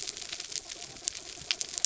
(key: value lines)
label: anthrophony, mechanical
recorder: SoundTrap 300